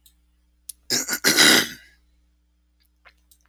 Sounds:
Throat clearing